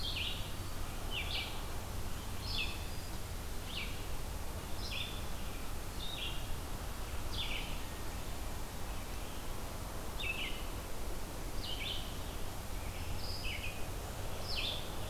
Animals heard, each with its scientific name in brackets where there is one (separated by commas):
Red-eyed Vireo (Vireo olivaceus)